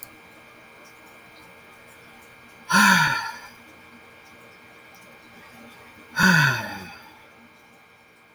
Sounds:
Sigh